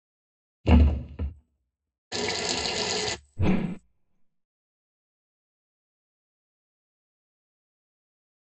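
At the start, there is thumping. Then, about 2 seconds in, the sound of a water tap is heard. Finally, about 3 seconds in, whooshing can be heard.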